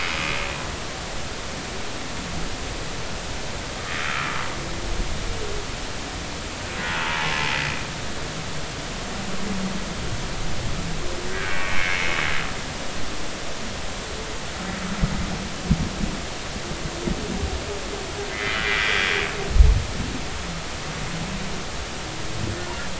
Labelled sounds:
6.8	7.1	humpback whale, 1.3 to 1.5 kHz
11.5	12.1	humpback whale, 2.0 to 2.4 kHz
18.3	19.0	humpback whale, 1.3 to 2.2 kHz

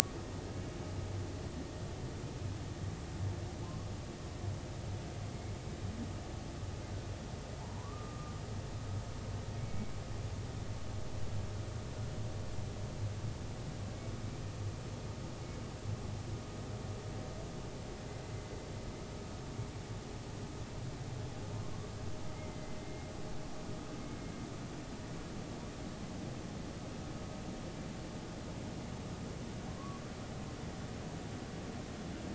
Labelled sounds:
7.6	8.3	humpback whale, 0.83 to 1.3 kHz
9.5	9.9	humpback whale, 2.1 to 2.4 kHz
22.3	23.1	humpback whale, 2.0 to 2.3 kHz
25.0	25.3	humpback whale, 2.1 to 2.2 kHz
29.8	30.0	humpback whale, 0.99 to 1.2 kHz

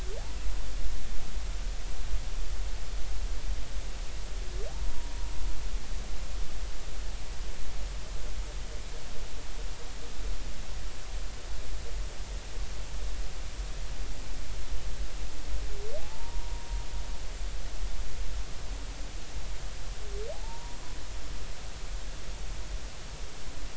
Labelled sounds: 4.7	5.1	humpback whale, 0.80 to 1.0 kHz
16.0	16.7	humpback whale, 0.80 to 1.0 kHz
20.3	20.8	humpback whale, 0.80 to 0.99 kHz

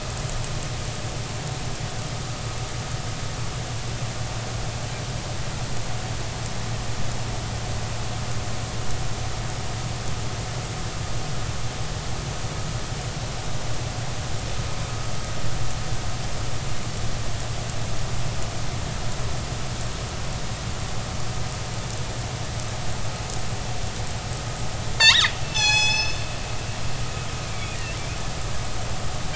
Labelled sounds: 25.0	26.2	killer whale, northern resident, G clan, call N24ii, 0.80 to 7.9 kHz
27.4	27.7	killer whale, northern resident, G clan, 2.1 to 2.5 kHz

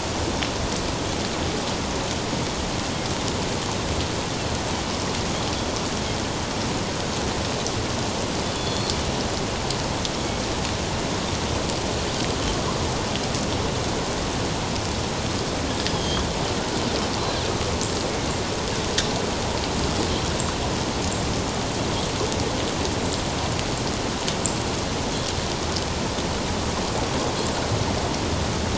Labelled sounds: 8.6	8.9	Pacific white-sided dolphin, 3.4 to 4.4 kHz
15.9	16.2	Pacific white-sided dolphin, 3.0 to 3.4 kHz

